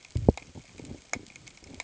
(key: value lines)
label: ambient
recorder: HydroMoth